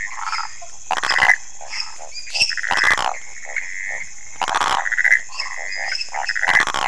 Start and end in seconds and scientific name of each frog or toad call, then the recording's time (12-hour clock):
0.0	2.9	Dendropsophus minutus
0.0	6.8	Phyllomedusa sauvagii
1.6	2.5	Pithecopus azureus
3.4	4.0	Pithecopus azureus
5.0	6.3	Pithecopus azureus
5.3	6.4	Dendropsophus minutus
12:45am